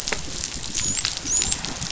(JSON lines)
{"label": "biophony, dolphin", "recorder": "SoundTrap 500"}